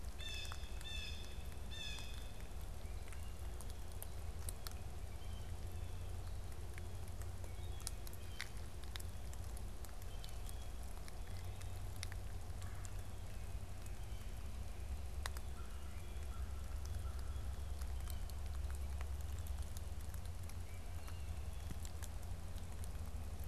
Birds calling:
Wood Thrush (Hylocichla mustelina), Blue Jay (Cyanocitta cristata), Red-bellied Woodpecker (Melanerpes carolinus)

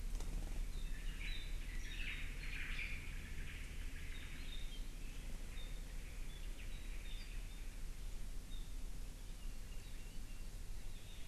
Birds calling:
Apapane (Himatione sanguinea), Omao (Myadestes obscurus)

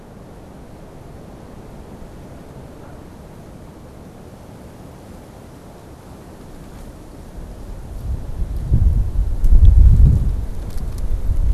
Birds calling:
Canada Goose (Branta canadensis)

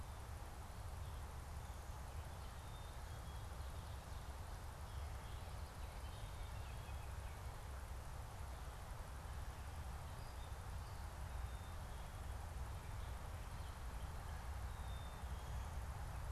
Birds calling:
Baltimore Oriole (Icterus galbula), Gray Catbird (Dumetella carolinensis), Black-capped Chickadee (Poecile atricapillus)

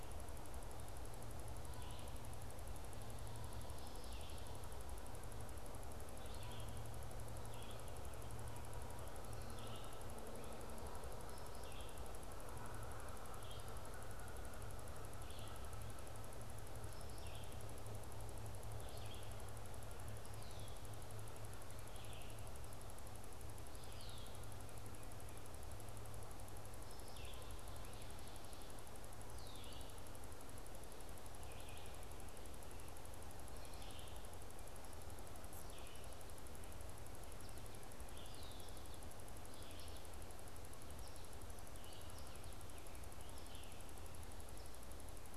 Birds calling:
American Goldfinch (Spinus tristis), Red-eyed Vireo (Vireo olivaceus), Red-winged Blackbird (Agelaius phoeniceus)

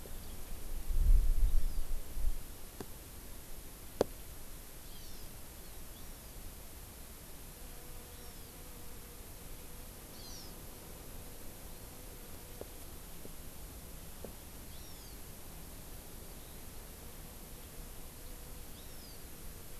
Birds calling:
Hawaii Amakihi (Chlorodrepanis virens), Hawaiian Hawk (Buteo solitarius)

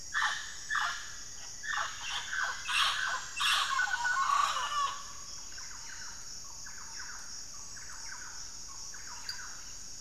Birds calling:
Thrush-like Wren (Campylorhynchus turdinus), Black-faced Antthrush (Formicarius analis), Mealy Parrot (Amazona farinosa), Rufous-fronted Antthrush (Formicarius rufifrons)

